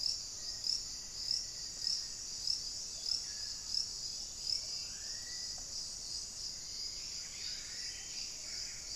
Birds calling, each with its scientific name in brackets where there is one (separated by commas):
Buff-breasted Wren (Cantorchilus leucotis), Black-faced Antthrush (Formicarius analis), Black-faced Cotinga (Conioptilon mcilhennyi)